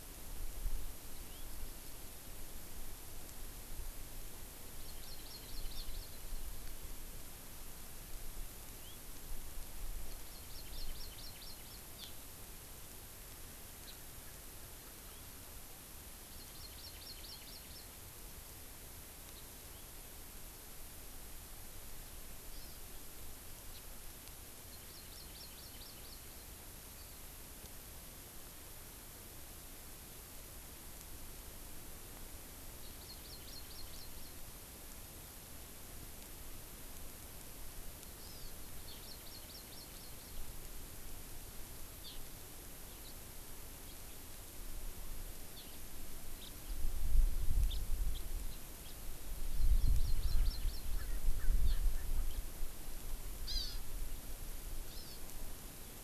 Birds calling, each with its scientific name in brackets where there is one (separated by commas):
Erckel's Francolin (Pternistis erckelii), Hawaii Amakihi (Chlorodrepanis virens), House Finch (Haemorhous mexicanus)